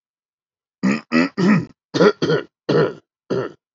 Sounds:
Throat clearing